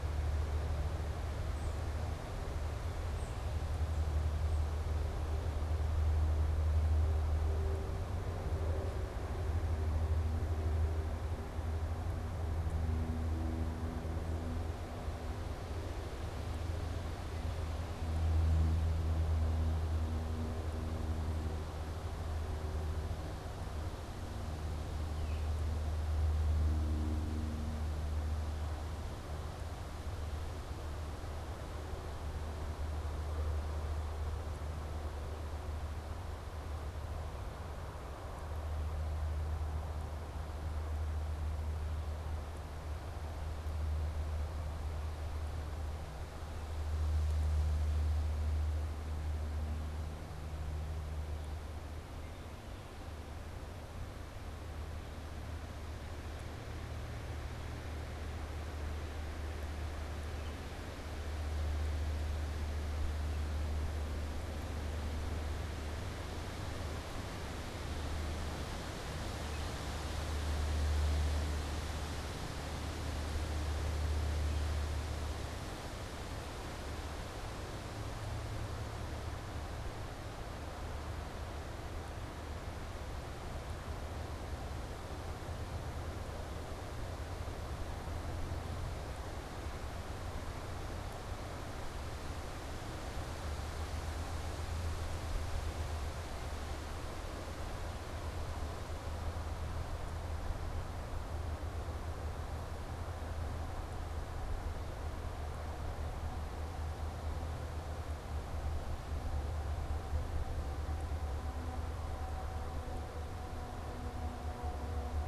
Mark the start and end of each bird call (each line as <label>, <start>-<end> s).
Tufted Titmouse (Baeolophus bicolor), 1.3-3.5 s